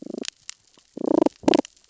{"label": "biophony, damselfish", "recorder": "SoundTrap 600 or HydroMoth"}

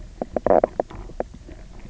{"label": "biophony, knock croak", "recorder": "SoundTrap 300"}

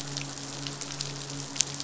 {"label": "biophony, midshipman", "recorder": "SoundTrap 500"}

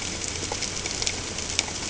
{"label": "ambient", "recorder": "HydroMoth"}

